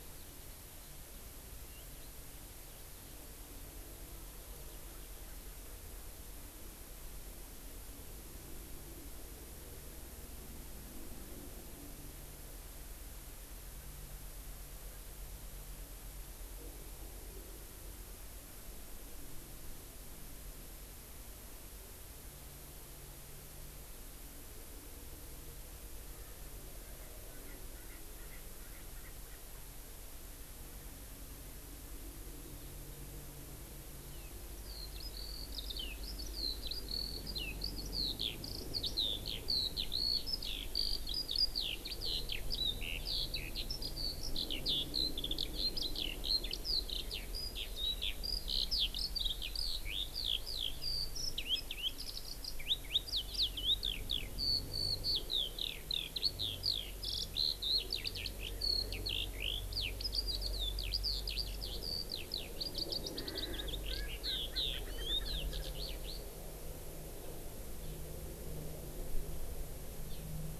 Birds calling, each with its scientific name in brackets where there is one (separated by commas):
Eurasian Skylark (Alauda arvensis), Hawaii Amakihi (Chlorodrepanis virens), Erckel's Francolin (Pternistis erckelii)